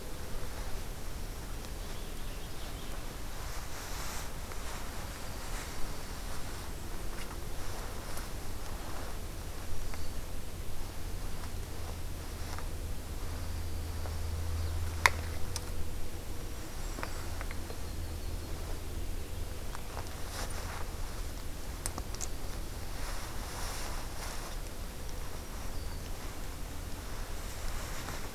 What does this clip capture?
Dark-eyed Junco, Black-throated Green Warbler, Yellow-rumped Warbler